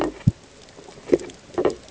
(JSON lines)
{"label": "ambient", "recorder": "HydroMoth"}